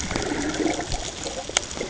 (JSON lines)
{"label": "ambient", "recorder": "HydroMoth"}